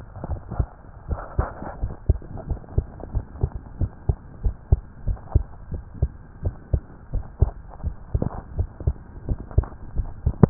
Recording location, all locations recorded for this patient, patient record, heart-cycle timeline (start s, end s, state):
tricuspid valve (TV)
aortic valve (AV)+pulmonary valve (PV)+tricuspid valve (TV)+mitral valve (MV)
#Age: Child
#Sex: Male
#Height: 138.0 cm
#Weight: 25.0 kg
#Pregnancy status: False
#Murmur: Absent
#Murmur locations: nan
#Most audible location: nan
#Systolic murmur timing: nan
#Systolic murmur shape: nan
#Systolic murmur grading: nan
#Systolic murmur pitch: nan
#Systolic murmur quality: nan
#Diastolic murmur timing: nan
#Diastolic murmur shape: nan
#Diastolic murmur grading: nan
#Diastolic murmur pitch: nan
#Diastolic murmur quality: nan
#Outcome: Normal
#Campaign: 2015 screening campaign
0.00	2.48	unannotated
2.48	2.60	S1
2.60	2.76	systole
2.76	2.88	S2
2.88	3.12	diastole
3.12	3.24	S1
3.24	3.40	systole
3.40	3.52	S2
3.52	3.80	diastole
3.80	3.92	S1
3.92	4.08	systole
4.08	4.18	S2
4.18	4.42	diastole
4.42	4.56	S1
4.56	4.68	systole
4.68	4.82	S2
4.82	5.06	diastole
5.06	5.18	S1
5.18	5.32	systole
5.32	5.46	S2
5.46	5.72	diastole
5.72	5.84	S1
5.84	6.00	systole
6.00	6.10	S2
6.10	6.44	diastole
6.44	6.54	S1
6.54	6.72	systole
6.72	6.82	S2
6.82	7.12	diastole
7.12	7.24	S1
7.24	7.37	systole
7.37	7.56	S2
7.56	7.79	diastole
7.79	7.96	S1
7.96	8.12	systole
8.12	8.26	S2
8.26	8.54	diastole
8.54	8.68	S1
8.68	8.84	systole
8.84	8.96	S2
8.96	9.26	diastole
9.26	9.38	S1
9.38	9.56	systole
9.56	9.68	S2
9.68	9.96	diastole
9.96	10.11	S1
10.11	10.24	systole
10.24	10.35	S2
10.35	10.50	unannotated